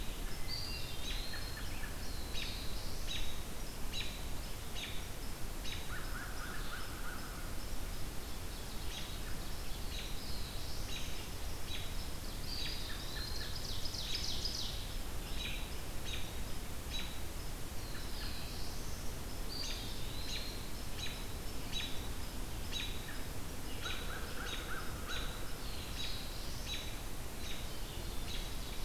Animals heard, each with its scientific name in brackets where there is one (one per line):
American Crow (Corvus brachyrhynchos)
American Robin (Turdus migratorius)
Eastern Wood-Pewee (Contopus virens)
Black-throated Blue Warbler (Setophaga caerulescens)
Hermit Thrush (Catharus guttatus)
Ovenbird (Seiurus aurocapilla)